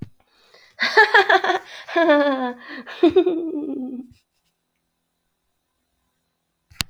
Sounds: Laughter